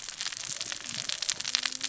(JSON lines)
{"label": "biophony, cascading saw", "recorder": "SoundTrap 600 or HydroMoth"}